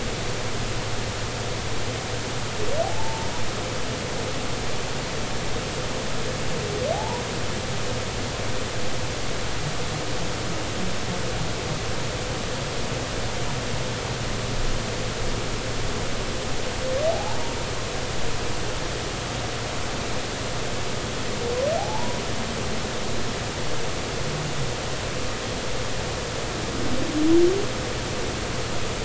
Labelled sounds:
2.8	3.3	humpback whale, 0.80 to 0.96 kHz
6.9	7.2	humpback whale, 0.80 to 1.0 kHz
17.1	17.4	humpback whale, 0.80 to 0.99 kHz
21.8	22.2	humpback whale, 0.80 to 1.0 kHz

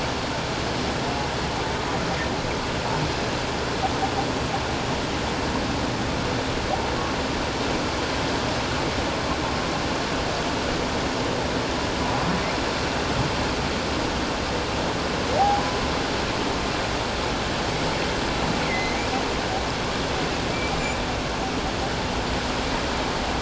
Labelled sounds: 18.7	19.0	humpback whale, 1.9 to 2.2 kHz
20.7	21.0	humpback whale, 6.9 to 7.3 kHz

